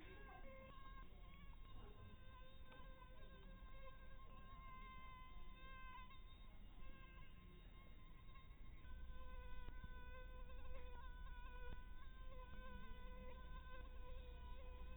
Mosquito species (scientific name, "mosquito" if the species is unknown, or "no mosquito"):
Anopheles dirus